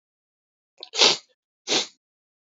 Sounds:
Sniff